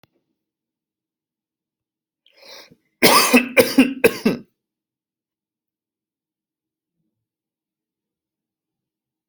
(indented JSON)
{
  "expert_labels": [
    {
      "quality": "good",
      "cough_type": "dry",
      "dyspnea": false,
      "wheezing": false,
      "stridor": false,
      "choking": false,
      "congestion": false,
      "nothing": true,
      "diagnosis": "upper respiratory tract infection",
      "severity": "mild"
    }
  ],
  "age": 30,
  "gender": "male",
  "respiratory_condition": false,
  "fever_muscle_pain": true,
  "status": "COVID-19"
}